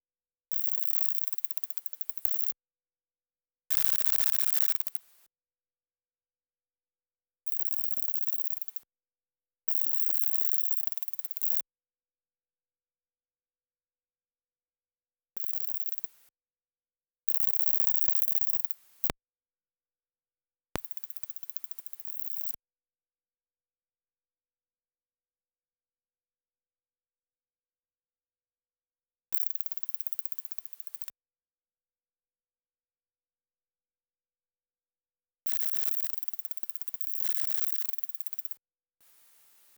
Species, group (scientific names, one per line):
Conocephalus dorsalis
Orthoptera